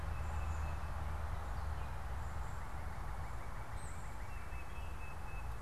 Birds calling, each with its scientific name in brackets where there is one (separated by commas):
Northern Cardinal (Cardinalis cardinalis), Tufted Titmouse (Baeolophus bicolor)